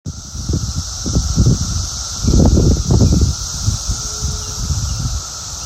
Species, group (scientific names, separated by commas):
Magicicada cassini, Cicadidae